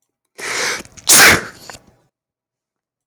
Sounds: Sneeze